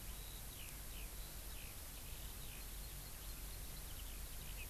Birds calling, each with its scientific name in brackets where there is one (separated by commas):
Eurasian Skylark (Alauda arvensis)